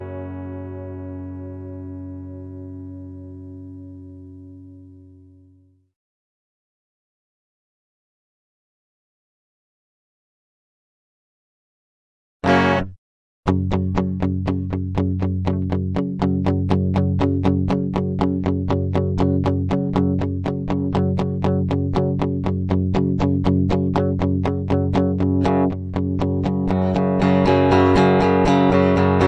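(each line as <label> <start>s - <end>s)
A fading electric guitar sound. 0.0s - 5.4s
A loud, distinct electric guitar strum. 12.4s - 13.0s
A rhythmic, loud electric guitar is playing. 13.4s - 29.3s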